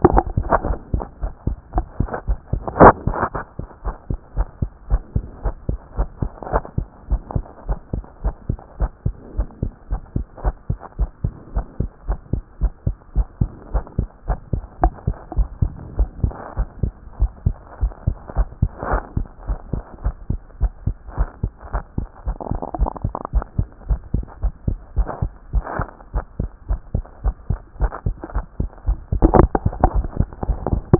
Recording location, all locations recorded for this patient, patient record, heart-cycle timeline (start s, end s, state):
tricuspid valve (TV)
aortic valve (AV)+pulmonary valve (PV)+tricuspid valve (TV)+mitral valve (MV)
#Age: Child
#Sex: Female
#Height: 114.0 cm
#Weight: 19.9 kg
#Pregnancy status: False
#Murmur: Absent
#Murmur locations: nan
#Most audible location: nan
#Systolic murmur timing: nan
#Systolic murmur shape: nan
#Systolic murmur grading: nan
#Systolic murmur pitch: nan
#Systolic murmur quality: nan
#Diastolic murmur timing: nan
#Diastolic murmur shape: nan
#Diastolic murmur grading: nan
#Diastolic murmur pitch: nan
#Diastolic murmur quality: nan
#Outcome: Abnormal
#Campaign: 2014 screening campaign
0.00	3.84	unannotated
3.84	3.96	S1
3.96	4.10	systole
4.10	4.18	S2
4.18	4.36	diastole
4.36	4.48	S1
4.48	4.60	systole
4.60	4.70	S2
4.70	4.90	diastole
4.90	5.02	S1
5.02	5.14	systole
5.14	5.24	S2
5.24	5.44	diastole
5.44	5.56	S1
5.56	5.68	systole
5.68	5.78	S2
5.78	5.98	diastole
5.98	6.08	S1
6.08	6.22	systole
6.22	6.30	S2
6.30	6.52	diastole
6.52	6.62	S1
6.62	6.76	systole
6.76	6.86	S2
6.86	7.10	diastole
7.10	7.22	S1
7.22	7.34	systole
7.34	7.44	S2
7.44	7.68	diastole
7.68	7.78	S1
7.78	7.94	systole
7.94	8.04	S2
8.04	8.24	diastole
8.24	8.34	S1
8.34	8.48	systole
8.48	8.58	S2
8.58	8.80	diastole
8.80	8.90	S1
8.90	9.04	systole
9.04	9.14	S2
9.14	9.36	diastole
9.36	9.48	S1
9.48	9.62	systole
9.62	9.72	S2
9.72	9.90	diastole
9.90	10.02	S1
10.02	10.16	systole
10.16	10.26	S2
10.26	10.44	diastole
10.44	10.54	S1
10.54	10.68	systole
10.68	10.78	S2
10.78	10.98	diastole
10.98	11.10	S1
11.10	11.24	systole
11.24	11.32	S2
11.32	11.54	diastole
11.54	11.66	S1
11.66	11.80	systole
11.80	11.90	S2
11.90	12.08	diastole
12.08	12.18	S1
12.18	12.32	systole
12.32	12.42	S2
12.42	12.60	diastole
12.60	12.72	S1
12.72	12.86	systole
12.86	12.96	S2
12.96	13.16	diastole
13.16	13.26	S1
13.26	13.40	systole
13.40	13.50	S2
13.50	13.72	diastole
13.72	13.84	S1
13.84	13.98	systole
13.98	14.08	S2
14.08	14.28	diastole
14.28	14.38	S1
14.38	14.52	systole
14.52	14.62	S2
14.62	14.82	diastole
14.82	14.94	S1
14.94	15.06	systole
15.06	15.16	S2
15.16	15.36	diastole
15.36	15.48	S1
15.48	15.60	systole
15.60	15.72	S2
15.72	15.98	diastole
15.98	16.10	S1
16.10	16.22	systole
16.22	16.32	S2
16.32	16.58	diastole
16.58	16.68	S1
16.68	16.82	systole
16.82	16.92	S2
16.92	17.20	diastole
17.20	17.30	S1
17.30	17.44	systole
17.44	17.56	S2
17.56	17.82	diastole
17.82	17.92	S1
17.92	18.06	systole
18.06	18.16	S2
18.16	18.36	diastole
18.36	18.48	S1
18.48	18.62	systole
18.62	18.70	S2
18.70	18.90	diastole
18.90	19.02	S1
19.02	19.16	systole
19.16	19.26	S2
19.26	19.48	diastole
19.48	19.58	S1
19.58	19.74	systole
19.74	19.82	S2
19.82	20.04	diastole
20.04	20.14	S1
20.14	20.30	systole
20.30	20.40	S2
20.40	20.60	diastole
20.60	20.72	S1
20.72	20.86	systole
20.86	20.96	S2
20.96	21.18	diastole
21.18	21.28	S1
21.28	21.42	systole
21.42	21.52	S2
21.52	21.72	diastole
21.72	21.84	S1
21.84	21.98	systole
21.98	22.08	S2
22.08	22.26	diastole
22.26	22.38	S1
22.38	22.50	systole
22.50	22.60	S2
22.60	22.78	diastole
22.78	22.90	S1
22.90	23.04	systole
23.04	23.14	S2
23.14	23.34	diastole
23.34	23.44	S1
23.44	23.58	systole
23.58	23.68	S2
23.68	23.88	diastole
23.88	24.00	S1
24.00	24.14	systole
24.14	24.24	S2
24.24	24.42	diastole
24.42	24.54	S1
24.54	24.68	systole
24.68	24.78	S2
24.78	24.96	diastole
24.96	25.08	S1
25.08	25.22	systole
25.22	25.32	S2
25.32	25.54	diastole
25.54	25.64	S1
25.64	25.78	systole
25.78	25.88	S2
25.88	26.14	diastole
26.14	26.24	S1
26.24	26.40	systole
26.40	26.50	S2
26.50	26.70	diastole
26.70	26.80	S1
26.80	26.94	systole
26.94	27.04	S2
27.04	27.24	diastole
27.24	27.36	S1
27.36	27.50	systole
27.50	27.60	S2
27.60	27.80	diastole
27.80	27.92	S1
27.92	28.06	systole
28.06	28.16	S2
28.16	28.34	diastole
28.34	28.46	S1
28.46	28.60	systole
28.60	28.68	S2
28.68	28.88	diastole
28.88	30.99	unannotated